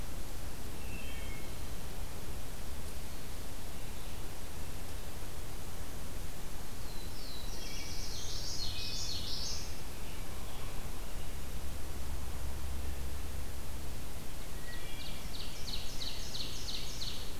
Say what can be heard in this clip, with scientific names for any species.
Hylocichla mustelina, Setophaga caerulescens, Geothlypis trichas, Turdus migratorius, Seiurus aurocapilla